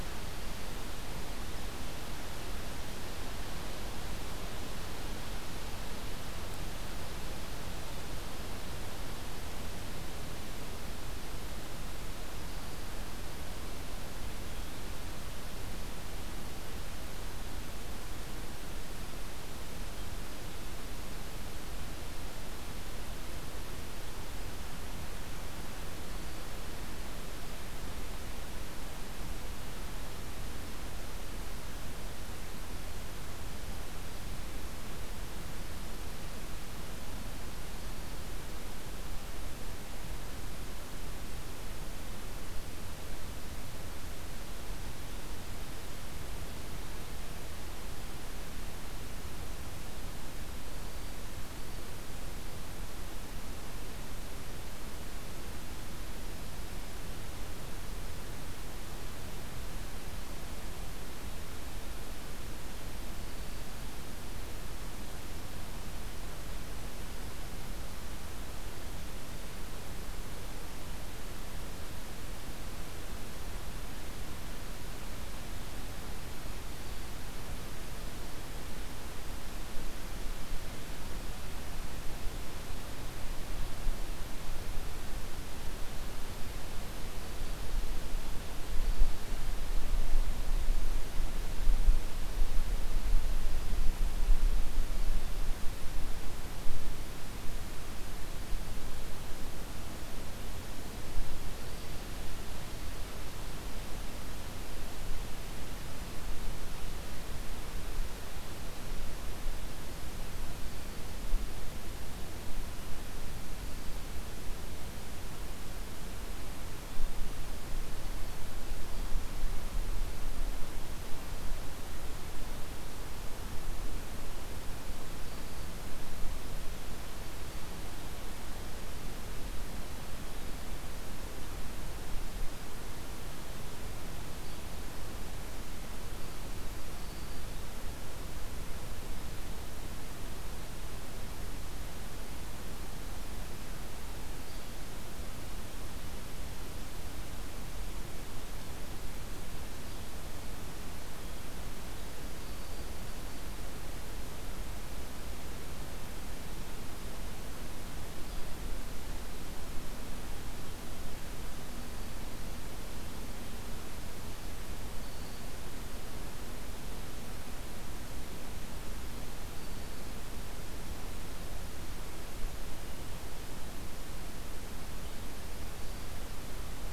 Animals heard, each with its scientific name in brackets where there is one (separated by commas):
Black-throated Green Warbler (Setophaga virens), Hairy Woodpecker (Dryobates villosus)